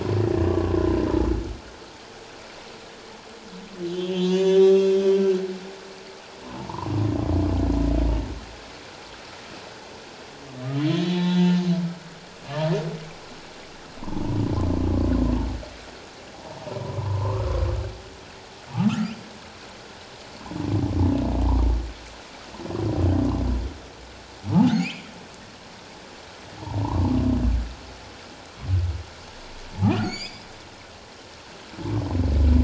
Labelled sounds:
0.5	1.0	humpback whale, 0.91 to 1.2 kHz
3.9	5.0	humpback whale, 0.88 to 7.0 kHz
6.6	6.9	humpback whale, 0.81 to 1.2 kHz
10.8	11.4	humpback whale, 0.84 to 4.0 kHz
12.4	12.7	humpback whale, 1.1 to 1.3 kHz
16.8	17.5	humpback whale, 0.84 to 1.3 kHz
18.9	19.1	humpback whale, 1.1 to 1.4 kHz
24.5	25.1	humpback whale, 0.78 to 3.2 kHz
26.6	27.1	humpback whale, 0.78 to 1.2 kHz
30.0	30.5	humpback whale, 2.1 to 7.2 kHz

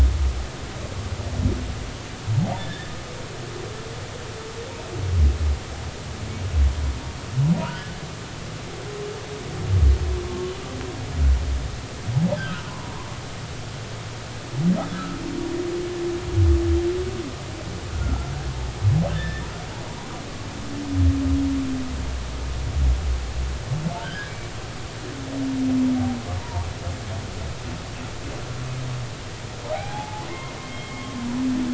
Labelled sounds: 2.6	2.9	humpback whale, 1.6 to 3.6 kHz
7.6	8.0	humpback whale, 1.2 to 1.6 kHz
10.2	10.5	humpback whale, 1.0 to 1.1 kHz
12.4	13.1	humpback whale, 0.90 to 1.8 kHz
14.9	15.2	humpback whale, 1.2 to 1.8 kHz
17.9	18.3	humpback whale, 1.3 to 1.5 kHz
19.1	19.4	humpback whale, 1.6 to 1.9 kHz
24.0	24.3	humpback whale, 1.3 to 1.8 kHz
26.4	26.6	humpback whale, 0.86 to 1.0 kHz
29.7	31.1	humpback whale, 0.80 to 3.3 kHz

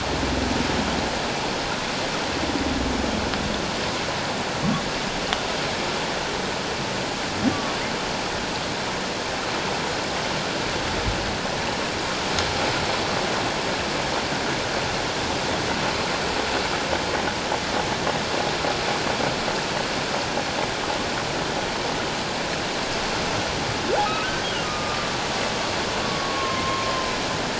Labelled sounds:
7.5	7.8	humpback whale, 1.1 to 1.2 kHz
24.6	25.1	humpback whale, 1.1 to 1.3 kHz
26.0	26.9	humpback whale, 1.0 to 1.2 kHz

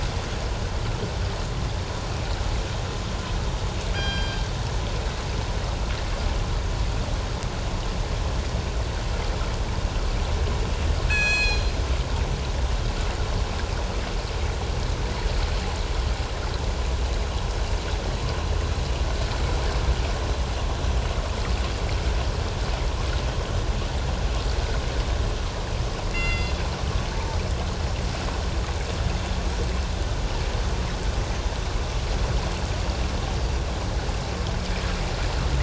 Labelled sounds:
3.9	4.6	killer whale, northern resident, G clan, 1.5 to 5.7 kHz
11.1	11.7	killer whale, northern resident, G clan, 1.4 to 7.7 kHz
26.1	26.5	killer whale, northern resident, G clan, 1.3 to 6.9 kHz
27.1	27.4	killer whale, northern resident, G clan, 0.81 to 0.94 kHz

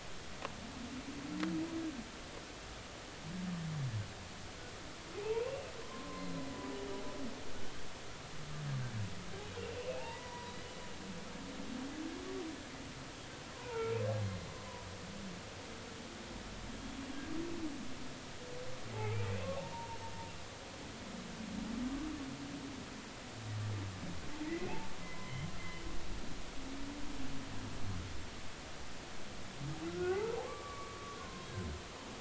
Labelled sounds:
5.2	6.5	humpback whale, 0.80 to 4.2 kHz
9.8	10.5	humpback whale, 0.80 to 2.9 kHz
13.5	13.9	humpback whale, 0.86 to 1.5 kHz
19.7	20.0	humpback whale, 0.86 to 0.99 kHz
25.0	25.5	humpback whale, 2.0 to 2.1 kHz
29.9	31.5	humpback whale, 0.80 to 1.6 kHz

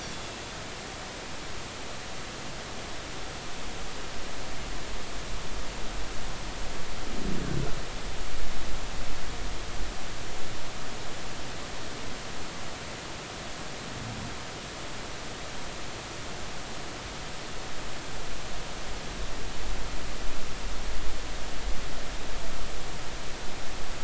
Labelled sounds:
0.0	0.3	Pacific white-sided dolphin, 3.3 to 3.6 kHz

